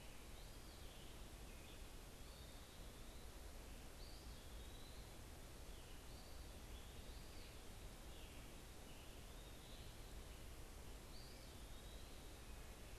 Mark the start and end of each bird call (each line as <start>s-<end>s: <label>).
0.0s-12.3s: Eastern Wood-Pewee (Contopus virens)